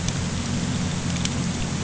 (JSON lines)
{"label": "anthrophony, boat engine", "recorder": "HydroMoth"}